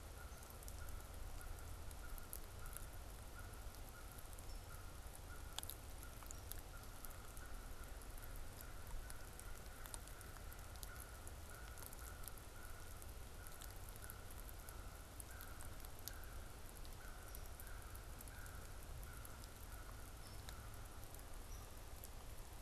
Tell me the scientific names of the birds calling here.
Corvus brachyrhynchos, Dryobates villosus